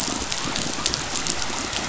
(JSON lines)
{"label": "biophony", "recorder": "SoundTrap 500"}